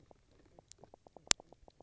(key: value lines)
label: biophony, knock croak
recorder: SoundTrap 300